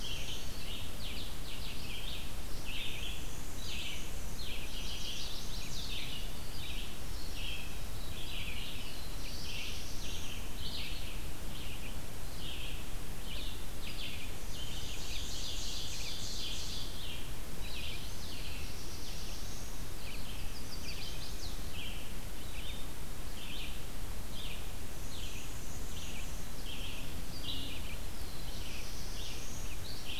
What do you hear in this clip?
Black-throated Blue Warbler, Red-eyed Vireo, Black-and-white Warbler, Chestnut-sided Warbler, Ovenbird